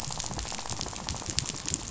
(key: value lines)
label: biophony, rattle
recorder: SoundTrap 500